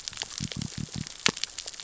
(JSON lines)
{"label": "biophony", "recorder": "SoundTrap 600 or HydroMoth"}